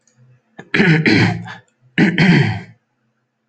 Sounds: Throat clearing